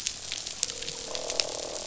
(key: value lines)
label: biophony, croak
recorder: SoundTrap 500